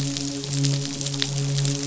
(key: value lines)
label: biophony, midshipman
recorder: SoundTrap 500